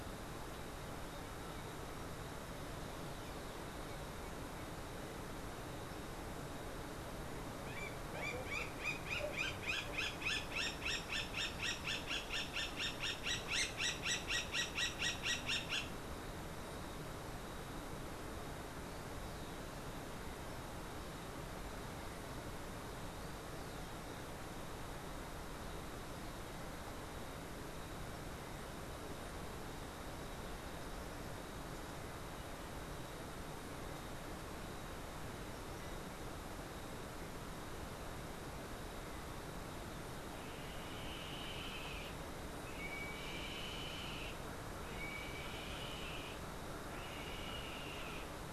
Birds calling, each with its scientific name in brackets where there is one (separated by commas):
Yellow-headed Caracara (Milvago chimachima), Roadside Hawk (Rupornis magnirostris)